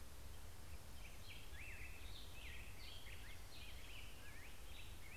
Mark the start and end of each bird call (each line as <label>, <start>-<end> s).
Black-headed Grosbeak (Pheucticus melanocephalus), 0.3-5.2 s